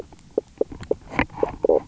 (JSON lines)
{"label": "biophony, knock croak", "recorder": "SoundTrap 300"}